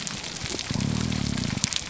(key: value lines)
label: biophony, grouper groan
recorder: SoundTrap 300